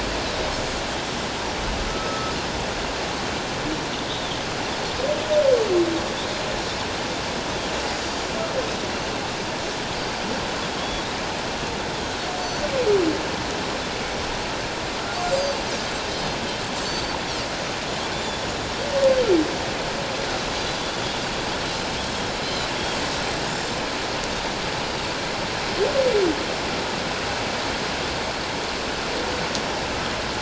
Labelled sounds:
0.3	0.5	Pacific white-sided dolphin, 3.7 to 4.0 kHz
1.9	2.3	humpback whale, 1.2 to 1.4 kHz
4.1	4.3	Pacific white-sided dolphin, 3.3 to 3.9 kHz
10.8	11.1	Pacific white-sided dolphin, 3.2 to 3.5 kHz
12.4	12.6	Pacific white-sided dolphin, 5.8 to 6.1 kHz
15.4	15.6	Pacific white-sided dolphin, 4.5 to 4.9 kHz
16.1	17.2	Pacific white-sided dolphin, 4.2 to 5.1 kHz
18.1	18.4	Pacific white-sided dolphin, 3.3 to 7.3 kHz
22.4	22.7	Pacific white-sided dolphin, 3.8 to 4.2 kHz
23.4	23.7	Pacific white-sided dolphin, 6.5 to 7.5 kHz

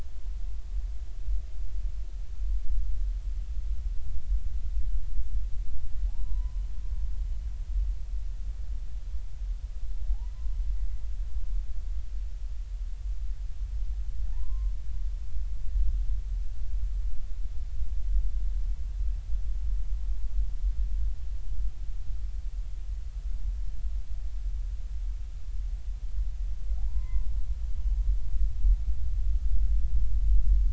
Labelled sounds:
6.1	6.6	humpback whale, 0.80 to 1.1 kHz
14.3	14.7	humpback whale, 0.80 to 1.1 kHz
26.8	27.3	humpback whale, 0.80 to 2.1 kHz

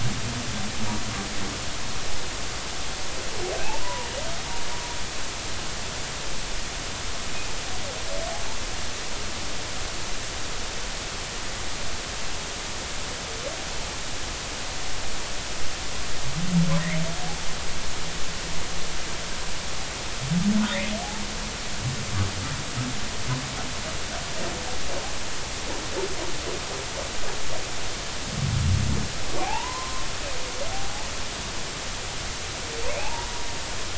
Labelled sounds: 3.6	4.1	humpback whale, 0.90 to 2.8 kHz
29.4	30.1	humpback whale, 0.80 to 1.1 kHz
33.0	33.3	humpback whale, 0.80 to 1.0 kHz

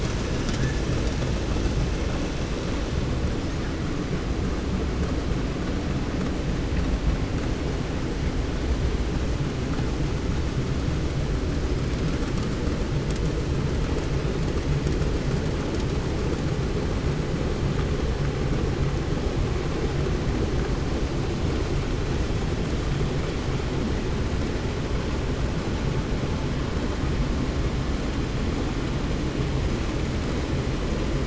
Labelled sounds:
0.1	0.9	killer whale, 1.3 to 8.0 kHz
3.3	3.7	killer whale, 1.1 to 8.0 kHz
11.5	12.2	killer whale, 4.3 to 5.7 kHz

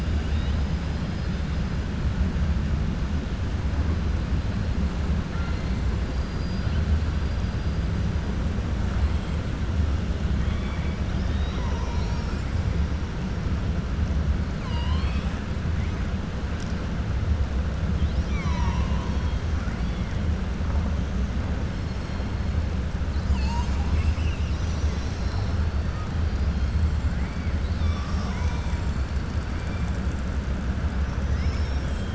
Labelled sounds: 0.1	0.6	killer whale, 1.9 to 4.8 kHz
5.3	5.7	killer whale, 1.1 to 2.8 kHz
10.3	11.0	killer whale, 1.2 to 3.5 kHz
14.6	15.4	killer whale, 0.96 to 5.4 kHz
17.9	19.4	killer whale, 0.91 to 6.6 kHz

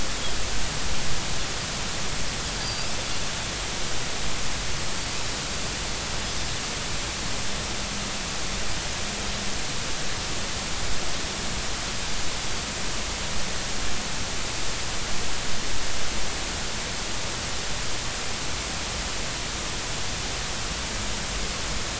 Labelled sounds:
2.6	2.9	Pacific white-sided dolphin, 4.6 to 5.0 kHz

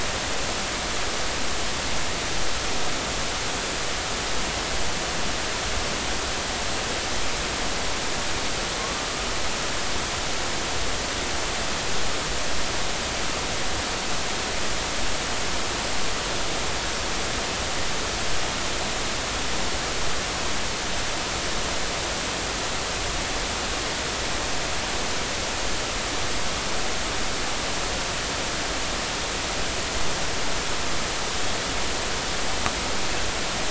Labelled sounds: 8.8	9.1	killer whale, northern resident, 1.0 to 1.2 kHz

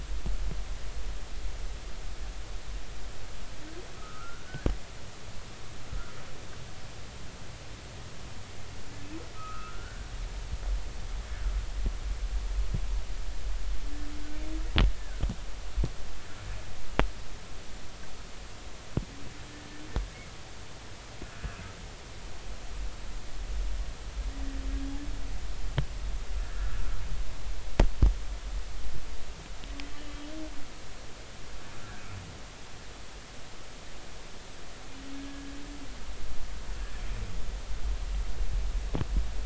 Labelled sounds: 4.0	4.7	humpback whale, 1.2 to 1.7 kHz
9.3	10.1	humpback whale, 1.2 to 1.7 kHz
15.0	15.2	humpback whale, 1.4 to 1.8 kHz
26.4	26.7	humpback whale, 1.6 to 1.8 kHz
31.8	32.0	humpback whale, 1.3 to 1.7 kHz
35.1	35.5	humpback whale, 1.6 to 1.7 kHz

